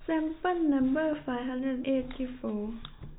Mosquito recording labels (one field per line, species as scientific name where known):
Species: no mosquito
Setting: cup